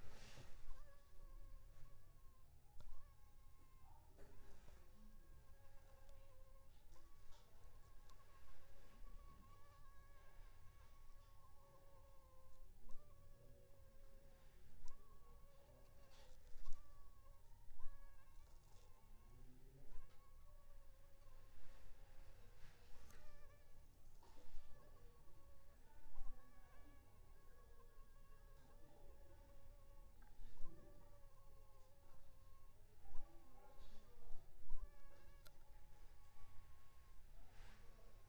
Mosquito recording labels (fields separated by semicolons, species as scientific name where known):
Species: Anopheles funestus s.s.; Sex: female; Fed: unfed; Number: one; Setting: cup